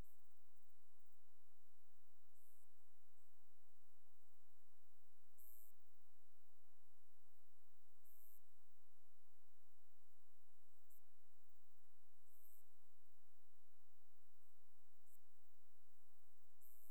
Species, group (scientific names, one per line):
Omocestus bolivari
Orthoptera